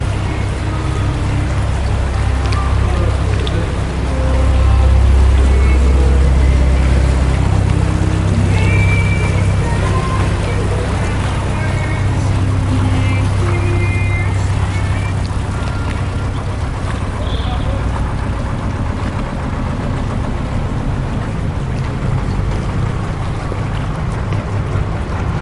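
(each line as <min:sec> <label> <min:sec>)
0:00.0 A faint, synthetic-sounding female voice is singing in the background. 0:17.3
0:00.0 A constant engine rumbling in the background. 0:25.4
0:02.1 Water splashes calmly in an irregular pattern. 0:03.9
0:02.8 Man speaking in the background. 0:03.8
0:07.3 Water splashes faintly in an irregular pattern in the background. 0:10.3
0:15.1 Water splashes calmly in an irregular pattern in the background. 0:16.9
0:17.2 A man is shouting from a distance. 0:17.8
0:21.6 Water splashes calmly in an irregular pattern in the background. 0:24.0
0:23.3 Footsteps on stone. 0:24.7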